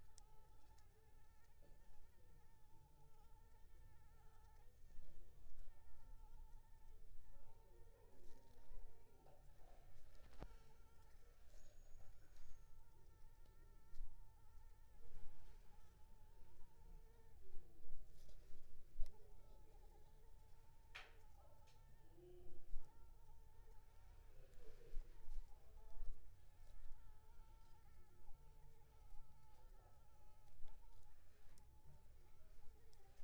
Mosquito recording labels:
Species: Anopheles arabiensis; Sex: female; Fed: unfed; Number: one; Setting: cup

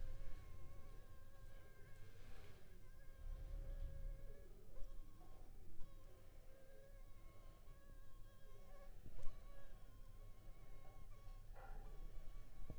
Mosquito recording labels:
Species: Anopheles funestus s.s.; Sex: female; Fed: unfed; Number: one; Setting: cup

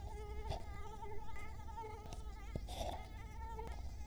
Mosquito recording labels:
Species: Culex quinquefasciatus; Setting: cup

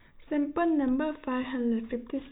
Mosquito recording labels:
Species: no mosquito; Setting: cup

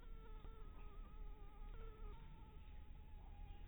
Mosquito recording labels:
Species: Anopheles harrisoni; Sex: female; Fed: unfed; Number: one; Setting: cup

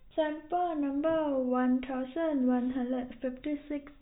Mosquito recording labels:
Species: no mosquito; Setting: cup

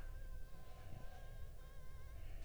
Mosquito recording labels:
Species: Anopheles funestus s.s.; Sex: female; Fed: unfed; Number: one; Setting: cup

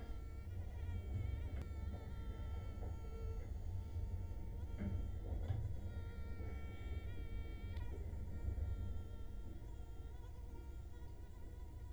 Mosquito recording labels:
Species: Culex quinquefasciatus; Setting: cup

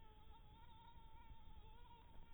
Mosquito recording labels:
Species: Anopheles maculatus; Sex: female; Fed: blood-fed; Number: one; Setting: cup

